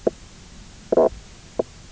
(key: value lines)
label: biophony, knock croak
recorder: SoundTrap 300